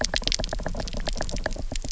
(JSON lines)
{"label": "biophony, knock", "recorder": "SoundTrap 300"}